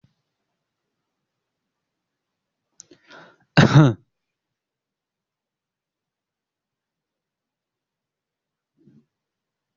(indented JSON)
{
  "expert_labels": [
    {
      "quality": "good",
      "cough_type": "dry",
      "dyspnea": false,
      "wheezing": false,
      "stridor": false,
      "choking": false,
      "congestion": false,
      "nothing": true,
      "diagnosis": "healthy cough",
      "severity": "pseudocough/healthy cough"
    }
  ],
  "gender": "female",
  "respiratory_condition": false,
  "fever_muscle_pain": false,
  "status": "COVID-19"
}